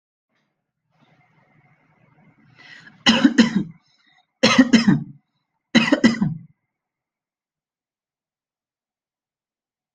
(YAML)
expert_labels:
- quality: good
  cough_type: dry
  dyspnea: false
  wheezing: false
  stridor: false
  choking: false
  congestion: false
  nothing: true
  diagnosis: upper respiratory tract infection
  severity: mild
age: 40
gender: male
respiratory_condition: false
fever_muscle_pain: false
status: healthy